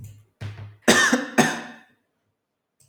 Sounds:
Cough